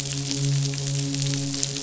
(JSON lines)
{"label": "biophony, midshipman", "recorder": "SoundTrap 500"}